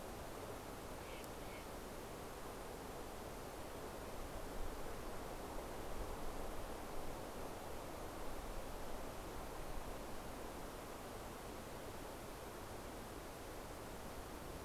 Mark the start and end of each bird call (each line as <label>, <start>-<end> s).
Steller's Jay (Cyanocitta stelleri), 0.0-2.6 s